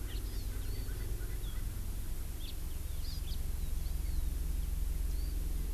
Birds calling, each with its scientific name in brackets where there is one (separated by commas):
Hawaii Amakihi (Chlorodrepanis virens), Erckel's Francolin (Pternistis erckelii), House Finch (Haemorhous mexicanus)